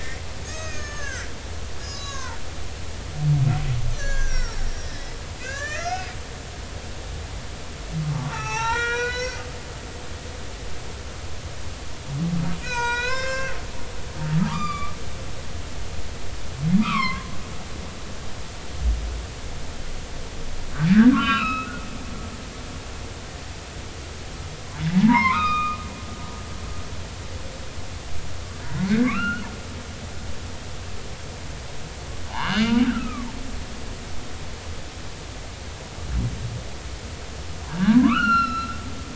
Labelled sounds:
0.4	1.3	humpback whale, 1.1 to 6.8 kHz
1.8	2.4	humpback whale, 0.86 to 6.8 kHz
3.9	6.1	humpback whale, 1.1 to 7.5 kHz
8.1	9.4	humpback whale, 0.80 to 6.1 kHz
12.6	13.5	humpback whale, 0.90 to 7.8 kHz
14.4	14.9	humpback whale, 1.1 to 7.3 kHz
16.8	17.3	humpback whale, 0.93 to 3.3 kHz
21.1	21.7	humpback whale, 1.0 to 4.1 kHz
24.9	25.8	humpback whale, 0.80 to 3.9 kHz
28.7	29.5	humpback whale, 1.0 to 2.9 kHz
32.3	33.6	humpback whale, 0.80 to 3.1 kHz
37.6	38.8	humpback whale, 0.83 to 5.9 kHz

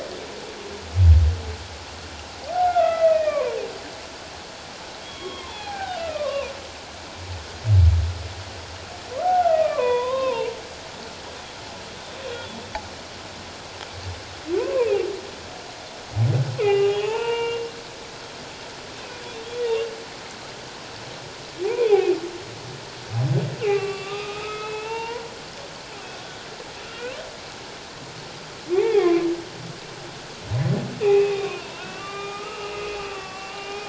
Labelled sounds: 2.5	3.6	humpback whale, 0.91 to 2.6 kHz
5.0	6.5	humpback whale, 0.78 to 3.5 kHz
9.1	10.5	humpback whale, 0.78 to 3.8 kHz
14.5	14.9	humpback whale, 0.88 to 2.7 kHz
16.6	17.6	humpback whale, 0.78 to 3.6 kHz
21.6	22.2	humpback whale, 0.78 to 2.6 kHz
23.6	25.2	humpback whale, 0.81 to 3.8 kHz
26.8	27.1	humpback whale, 1.3 to 1.6 kHz
28.7	29.2	humpback whale, 0.78 to 2.8 kHz
31.0	33.8	humpback whale, 0.94 to 3.7 kHz

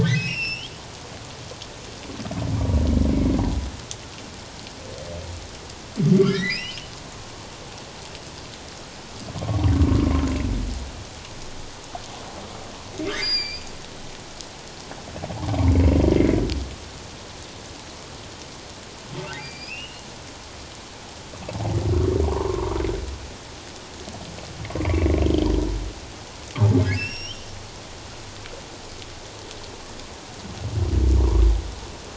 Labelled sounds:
0.0	0.7	humpback whale, 1.5 to 5.7 kHz
3.1	3.4	humpback whale, 2.1 to 2.3 kHz
6.2	6.8	humpback whale, 1.3 to 3.2 kHz
13.1	13.6	humpback whale, 1.5 to 5.0 kHz
19.4	20.0	humpback whale, 2.2 to 5.2 kHz
22.3	22.7	humpback whale, 0.81 to 1.2 kHz
24.8	25.5	humpback whale, 1.9 to 3.3 kHz
26.8	27.4	humpback whale, 1.4 to 5.8 kHz

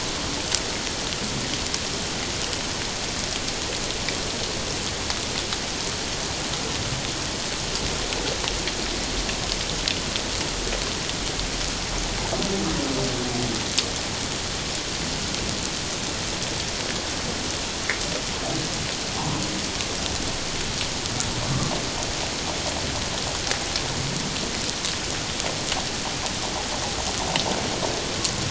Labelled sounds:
19.1	19.4	humpback whale, 0.78 to 1.1 kHz

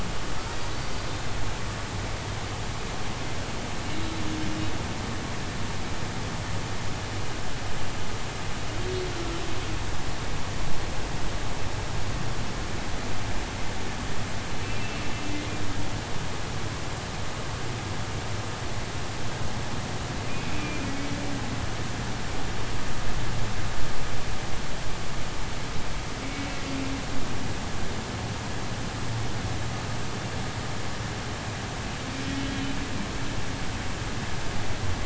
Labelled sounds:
0.7	1.1	humpback whale, 4.4 to 4.7 kHz
9.1	9.4	humpback whale, 1.3 to 1.5 kHz
14.6	15.0	humpback whale, 2.6 to 2.7 kHz
20.6	20.9	humpback whale, 2.3 to 2.6 kHz

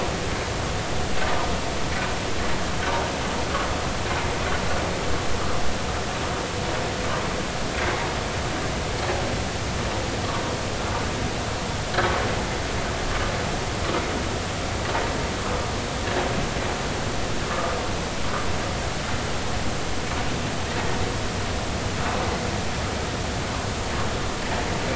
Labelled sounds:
17.5	17.7	vessel noise, 1.1 to 1.3 kHz

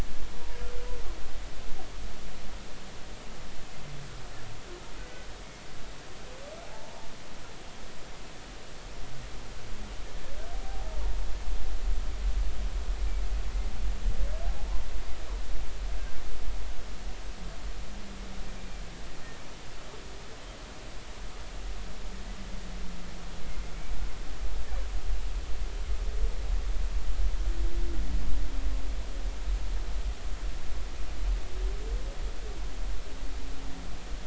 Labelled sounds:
6.6	7.1	humpback whale, 0.80 to 0.99 kHz
10.6	11.0	humpback whale, 0.80 to 0.93 kHz
14.6	14.8	humpback whale, 0.80 to 1.1 kHz
18.6	18.8	humpback whale, 2.3 to 2.4 kHz

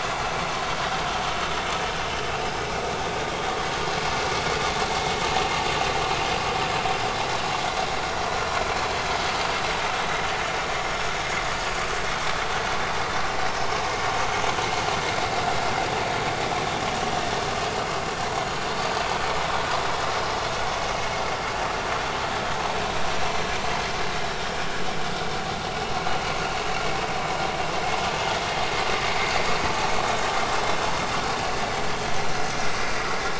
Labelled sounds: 17.6	17.9	vessel noise, 4.7 to 4.9 kHz

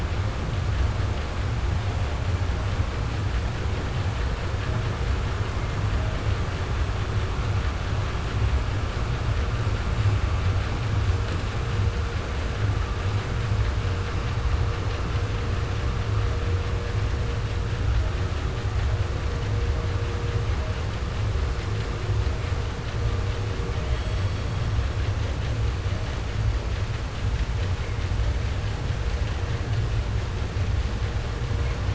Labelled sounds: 23.7	25.0	killer whale, southern resident, J pod, call S44, 1.0 to 8.0 kHz

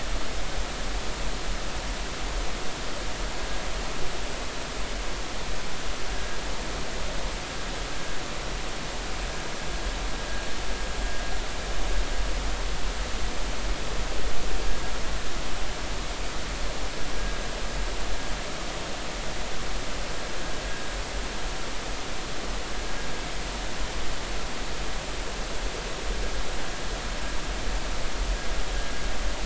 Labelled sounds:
6.1	6.4	vessel noise, 1.6 to 1.7 kHz

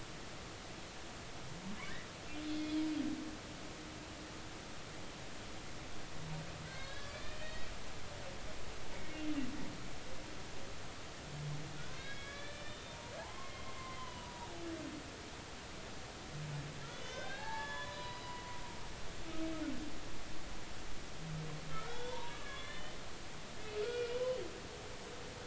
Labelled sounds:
6.7	7.7	humpback whale, 1.4 to 4.7 kHz
8.9	9.2	humpback whale, 2.1 to 2.3 kHz
11.8	14.5	humpback whale, 0.80 to 4.2 kHz
16.9	18.4	humpback whale, 0.80 to 6.6 kHz
21.7	24.4	humpback whale, 0.80 to 3.7 kHz

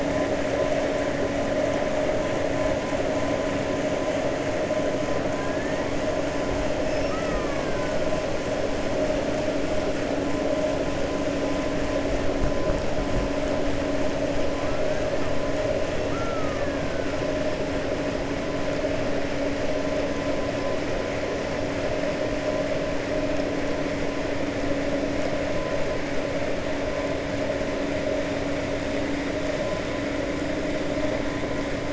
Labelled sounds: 6.9	7.8	killer whale, 1.1 to 2.8 kHz
16.0	16.8	killer whale, 1.1 to 1.9 kHz

